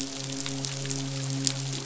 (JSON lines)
{"label": "biophony, midshipman", "recorder": "SoundTrap 500"}